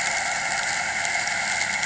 {"label": "anthrophony, boat engine", "recorder": "HydroMoth"}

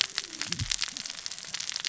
{"label": "biophony, cascading saw", "recorder": "SoundTrap 600 or HydroMoth"}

